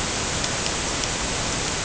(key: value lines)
label: ambient
recorder: HydroMoth